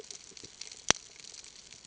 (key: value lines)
label: ambient
recorder: HydroMoth